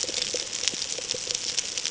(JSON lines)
{"label": "ambient", "recorder": "HydroMoth"}